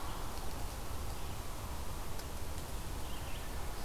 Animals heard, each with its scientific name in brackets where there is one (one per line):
Red-eyed Vireo (Vireo olivaceus)